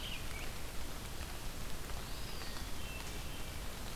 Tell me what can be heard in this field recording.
Red-eyed Vireo, Eastern Wood-Pewee, Hermit Thrush